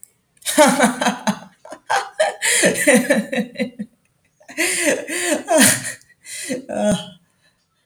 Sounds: Laughter